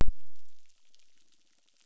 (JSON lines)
{"label": "biophony", "recorder": "SoundTrap 600"}